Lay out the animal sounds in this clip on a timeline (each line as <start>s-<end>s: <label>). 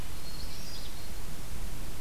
0.1s-1.2s: Hermit Thrush (Catharus guttatus)